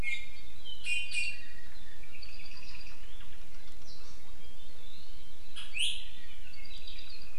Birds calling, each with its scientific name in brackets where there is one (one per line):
Apapane (Himatione sanguinea)
Iiwi (Drepanis coccinea)